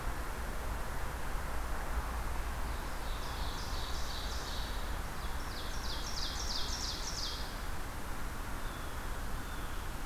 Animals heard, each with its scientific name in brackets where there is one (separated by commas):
Blue Jay (Cyanocitta cristata), Ovenbird (Seiurus aurocapilla)